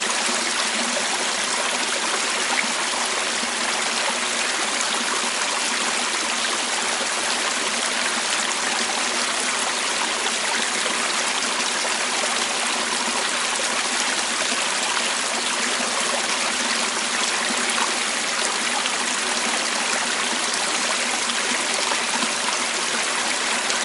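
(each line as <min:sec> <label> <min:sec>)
0:00.0 A river flows softly. 0:23.8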